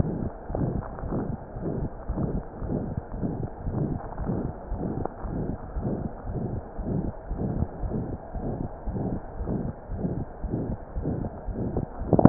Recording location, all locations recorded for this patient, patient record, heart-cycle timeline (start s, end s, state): pulmonary valve (PV)
aortic valve (AV)+pulmonary valve (PV)+tricuspid valve (TV)+mitral valve (MV)
#Age: Child
#Sex: Male
#Height: nan
#Weight: nan
#Pregnancy status: False
#Murmur: Present
#Murmur locations: aortic valve (AV)+mitral valve (MV)+pulmonary valve (PV)+tricuspid valve (TV)
#Most audible location: tricuspid valve (TV)
#Systolic murmur timing: Holosystolic
#Systolic murmur shape: Diamond
#Systolic murmur grading: III/VI or higher
#Systolic murmur pitch: High
#Systolic murmur quality: Blowing
#Diastolic murmur timing: nan
#Diastolic murmur shape: nan
#Diastolic murmur grading: nan
#Diastolic murmur pitch: nan
#Diastolic murmur quality: nan
#Outcome: Abnormal
#Campaign: 2015 screening campaign
0.00	4.69	unannotated
4.69	4.78	S1
4.78	4.97	systole
4.97	5.06	S2
5.06	5.22	diastole
5.22	5.31	S1
5.31	5.48	systole
5.48	5.58	S2
5.58	5.74	diastole
5.74	5.84	S1
5.84	6.00	systole
6.00	6.10	S2
6.10	6.26	diastole
6.26	6.35	S1
6.35	6.52	systole
6.52	6.62	S2
6.62	6.77	diastole
6.77	6.85	S1
6.85	7.05	systole
7.05	7.14	S2
7.14	7.29	diastole
7.29	7.39	S1
7.39	7.58	systole
7.58	7.70	S2
7.70	7.81	diastole
7.81	7.91	S1
7.91	8.08	systole
8.08	8.20	S2
8.20	8.34	diastole
8.34	8.43	S1
8.43	8.60	systole
8.60	8.70	S2
8.70	8.86	diastole
8.86	8.97	S1
8.97	9.10	systole
9.10	9.22	S2
9.22	9.38	diastole
9.38	9.49	S1
9.49	9.64	systole
9.64	9.74	S2
9.74	9.89	diastole
9.89	10.01	S1
10.01	10.16	systole
10.16	10.26	S2
10.26	10.41	diastole
10.41	10.51	S1
10.51	10.68	systole
10.68	10.78	S2
10.78	10.95	diastole
10.95	11.06	S1
11.06	11.22	systole
11.22	11.32	S2
11.32	11.46	diastole
11.46	11.55	S1
11.55	12.29	unannotated